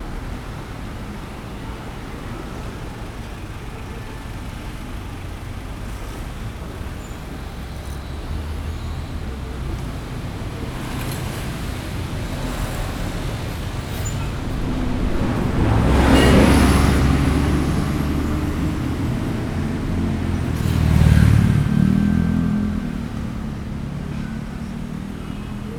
Does a wooden door slam shut?
no